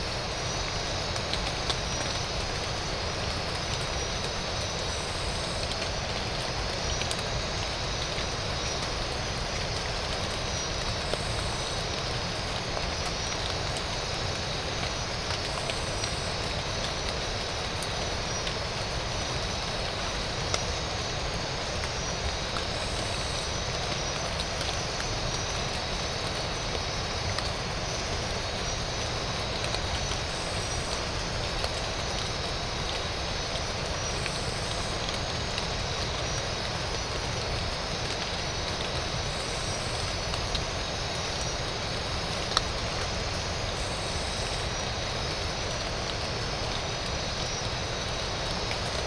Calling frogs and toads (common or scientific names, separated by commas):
none